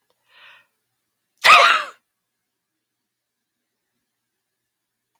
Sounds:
Sneeze